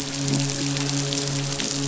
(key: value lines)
label: biophony, midshipman
recorder: SoundTrap 500